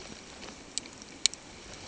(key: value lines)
label: ambient
recorder: HydroMoth